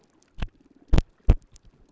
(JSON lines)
{"label": "biophony", "recorder": "SoundTrap 300"}